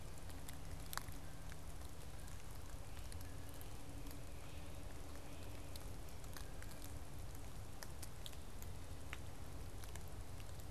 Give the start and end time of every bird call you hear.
[3.08, 5.88] Great Crested Flycatcher (Myiarchus crinitus)

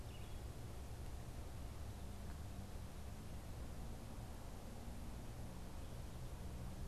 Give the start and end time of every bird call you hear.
[0.00, 0.80] Red-eyed Vireo (Vireo olivaceus)

